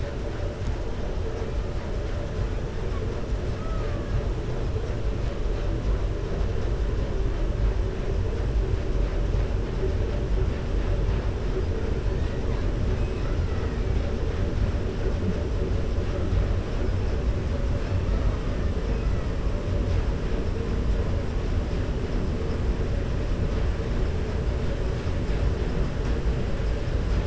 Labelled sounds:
3.5	4.1	killer whale, 0.63 to 2.5 kHz

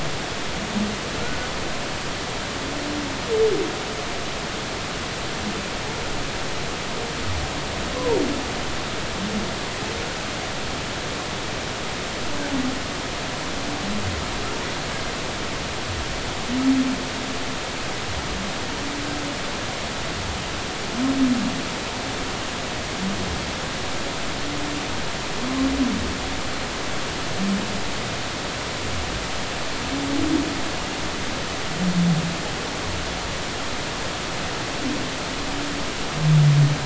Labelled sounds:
1.2	1.5	humpback whale, 1.3 to 1.5 kHz
8.0	8.2	humpback whale, 0.86 to 1.1 kHz

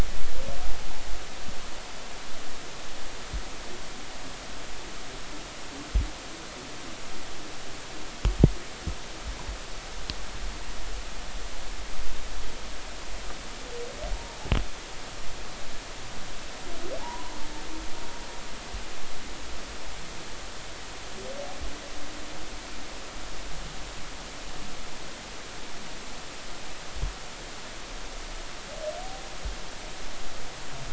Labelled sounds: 17.0	17.3	humpback whale, 0.80 to 1.1 kHz

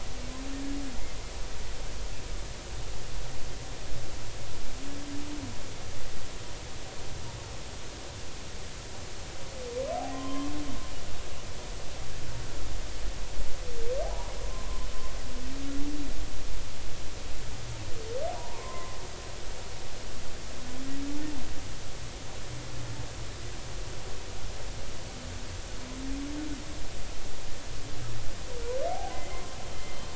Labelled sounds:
10.0	10.5	humpback whale, 0.80 to 3.2 kHz
14.0	14.7	humpback whale, 0.80 to 1.1 kHz
18.4	19.0	humpback whale, 0.86 to 1.2 kHz
28.9	29.4	humpback whale, 0.80 to 2.2 kHz

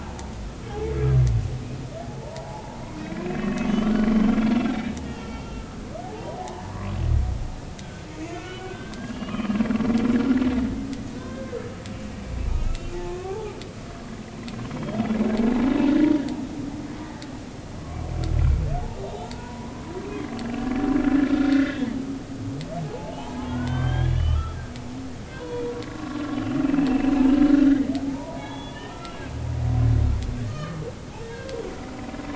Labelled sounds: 2.0	3.7	humpback whale, 0.80 to 2.7 kHz
4.1	4.4	humpback whale, 3.0 to 3.2 kHz
5.0	6.4	humpback whale, 0.80 to 3.3 kHz
7.8	9.6	humpback whale, 1.0 to 3.0 kHz
11.2	11.6	humpback whale, 1.5 to 1.6 kHz
12.6	13.5	humpback whale, 0.80 to 2.8 kHz
14.7	15.2	humpback whale, 3.1 to 3.5 kHz
19.3	20.3	humpback whale, 0.90 to 2.3 kHz
21.2	21.8	humpback whale, 1.3 to 2.1 kHz
22.8	24.6	humpback whale, 0.80 to 3.6 kHz
25.3	25.7	humpback whale, 0.93 to 3.5 kHz
26.0	27.2	humpback whale, 1.0 to 2.9 kHz
28.0	29.2	humpback whale, 0.80 to 3.5 kHz
30.5	30.8	humpback whale, 1.1 to 4.4 kHz
31.3	31.5	humpback whale, 1.5 to 1.7 kHz

